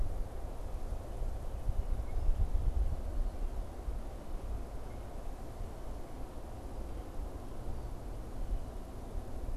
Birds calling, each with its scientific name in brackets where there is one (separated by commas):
Red-winged Blackbird (Agelaius phoeniceus)